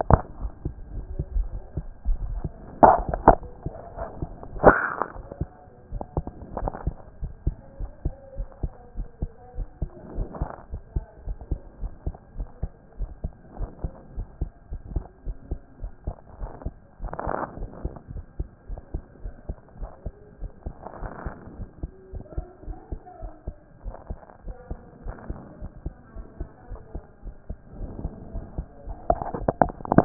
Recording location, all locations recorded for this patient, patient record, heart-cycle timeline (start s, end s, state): aortic valve (AV)
aortic valve (AV)+pulmonary valve (PV)+tricuspid valve (TV)+mitral valve (MV)
#Age: Child
#Sex: Male
#Height: 135.0 cm
#Weight: 28.2 kg
#Pregnancy status: False
#Murmur: Absent
#Murmur locations: nan
#Most audible location: nan
#Systolic murmur timing: nan
#Systolic murmur shape: nan
#Systolic murmur grading: nan
#Systolic murmur pitch: nan
#Systolic murmur quality: nan
#Diastolic murmur timing: nan
#Diastolic murmur shape: nan
#Diastolic murmur grading: nan
#Diastolic murmur pitch: nan
#Diastolic murmur quality: nan
#Outcome: Normal
#Campaign: 2014 screening campaign
0.00	6.72	unannotated
6.72	6.84	systole
6.84	6.94	S2
6.94	7.22	diastole
7.22	7.34	S1
7.34	7.46	systole
7.46	7.56	S2
7.56	7.80	diastole
7.80	7.90	S1
7.90	8.04	systole
8.04	8.14	S2
8.14	8.38	diastole
8.38	8.48	S1
8.48	8.62	systole
8.62	8.72	S2
8.72	8.96	diastole
8.96	9.08	S1
9.08	9.20	systole
9.20	9.30	S2
9.30	9.56	diastole
9.56	9.68	S1
9.68	9.80	systole
9.80	9.90	S2
9.90	10.16	diastole
10.16	10.28	S1
10.28	10.40	systole
10.40	10.50	S2
10.50	10.72	diastole
10.72	10.82	S1
10.82	10.94	systole
10.94	11.04	S2
11.04	11.26	diastole
11.26	11.38	S1
11.38	11.50	systole
11.50	11.60	S2
11.60	11.80	diastole
11.80	11.92	S1
11.92	12.06	systole
12.06	12.14	S2
12.14	12.36	diastole
12.36	12.48	S1
12.48	12.62	systole
12.62	12.70	S2
12.70	12.98	diastole
12.98	13.10	S1
13.10	13.22	systole
13.22	13.32	S2
13.32	13.58	diastole
13.58	13.70	S1
13.70	13.82	systole
13.82	13.92	S2
13.92	14.16	diastole
14.16	14.28	S1
14.28	14.40	systole
14.40	14.50	S2
14.50	14.72	diastole
14.72	14.82	S1
14.82	14.94	systole
14.94	15.04	S2
15.04	15.26	diastole
15.26	15.36	S1
15.36	15.50	systole
15.50	15.60	S2
15.60	15.82	diastole
15.82	15.92	S1
15.92	16.06	systole
16.06	16.16	S2
16.16	16.40	diastole
16.40	16.52	S1
16.52	16.64	systole
16.64	16.74	S2
16.74	17.02	diastole
17.02	17.12	S1
17.12	17.26	systole
17.26	17.34	S2
17.34	17.58	diastole
17.58	17.70	S1
17.70	17.84	systole
17.84	17.92	S2
17.92	18.12	diastole
18.12	18.24	S1
18.24	18.38	systole
18.38	18.48	S2
18.48	18.70	diastole
18.70	18.80	S1
18.80	18.94	systole
18.94	19.02	S2
19.02	19.24	diastole
19.24	19.34	S1
19.34	19.48	systole
19.48	19.56	S2
19.56	19.80	diastole
19.80	19.90	S1
19.90	20.04	systole
20.04	20.14	S2
20.14	20.40	diastole
20.40	20.52	S1
20.52	20.66	systole
20.66	20.74	S2
20.74	21.00	diastole
21.00	21.12	S1
21.12	21.24	systole
21.24	21.34	S2
21.34	21.56	diastole
21.56	21.68	S1
21.68	21.82	systole
21.82	21.92	S2
21.92	22.12	diastole
22.12	22.24	S1
22.24	22.36	systole
22.36	22.46	S2
22.46	22.66	diastole
22.66	22.78	S1
22.78	22.90	systole
22.90	23.00	S2
23.00	23.22	diastole
23.22	23.32	S1
23.32	23.46	systole
23.46	23.56	S2
23.56	23.84	diastole
23.84	23.94	S1
23.94	24.08	systole
24.08	24.18	S2
24.18	24.46	diastole
24.46	24.56	S1
24.56	24.70	systole
24.70	24.78	S2
24.78	25.04	diastole
25.04	25.16	S1
25.16	25.28	systole
25.28	25.40	S2
25.40	25.60	diastole
25.60	25.72	S1
25.72	25.84	systole
25.84	25.94	S2
25.94	26.16	diastole
26.16	26.26	S1
26.26	26.40	systole
26.40	26.48	S2
26.48	26.70	diastole
26.70	26.80	S1
26.80	26.94	systole
26.94	27.04	S2
27.04	27.24	diastole
27.24	27.34	S1
27.34	27.48	systole
27.48	27.58	S2
27.58	27.78	diastole
27.78	27.90	S1
27.90	28.02	systole
28.02	28.12	S2
28.12	28.34	diastole
28.34	30.05	unannotated